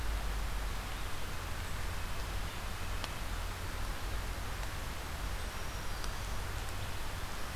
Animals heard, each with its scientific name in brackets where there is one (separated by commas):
Black-throated Green Warbler (Setophaga virens), Red-breasted Nuthatch (Sitta canadensis)